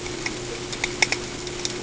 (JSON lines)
{"label": "ambient", "recorder": "HydroMoth"}